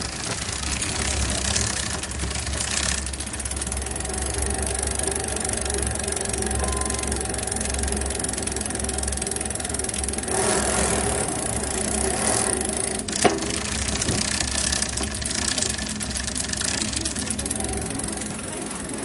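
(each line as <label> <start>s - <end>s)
A bicycle chain clicks irregularly at varying tempos. 0.0s - 19.0s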